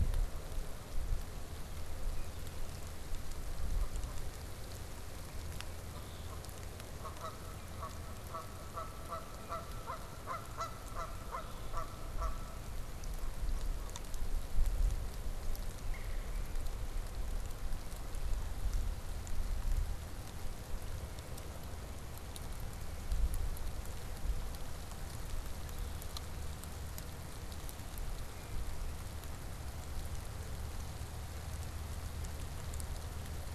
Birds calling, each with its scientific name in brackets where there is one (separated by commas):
Red-bellied Woodpecker (Melanerpes carolinus), Canada Goose (Branta canadensis), Red-winged Blackbird (Agelaius phoeniceus)